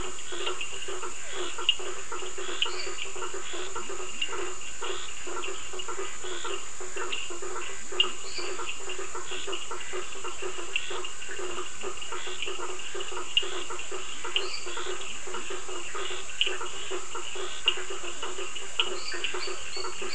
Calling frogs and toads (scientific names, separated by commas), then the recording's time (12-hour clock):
Physalaemus cuvieri, Boana faber, Sphaenorhynchus surdus, Dendropsophus minutus, Leptodactylus latrans
9:15pm